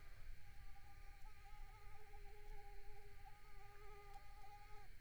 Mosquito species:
Mansonia africanus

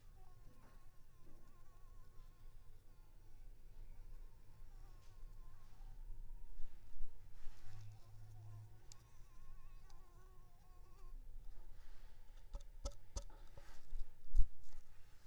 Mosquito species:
Anopheles arabiensis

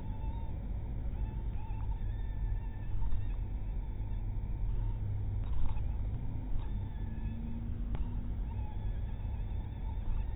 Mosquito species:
mosquito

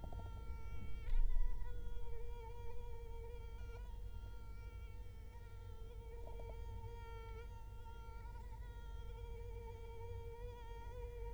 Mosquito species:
Culex quinquefasciatus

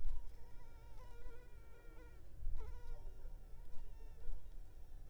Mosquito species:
Anopheles arabiensis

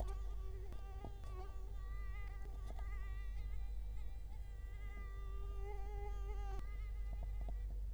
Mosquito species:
Culex quinquefasciatus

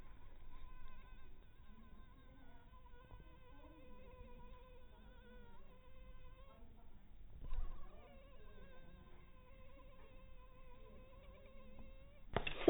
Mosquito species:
mosquito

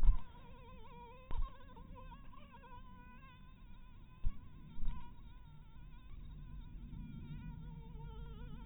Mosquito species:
mosquito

